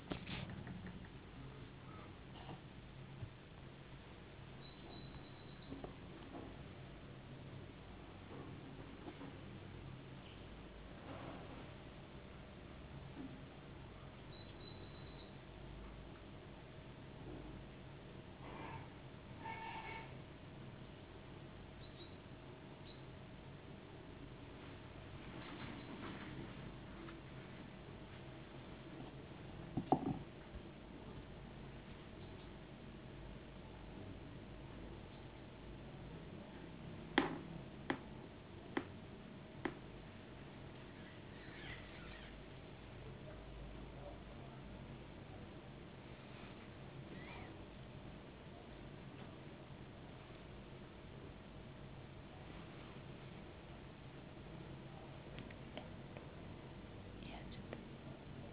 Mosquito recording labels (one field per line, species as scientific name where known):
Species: no mosquito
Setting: insect culture